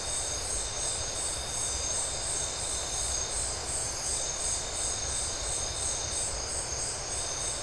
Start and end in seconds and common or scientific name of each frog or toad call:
none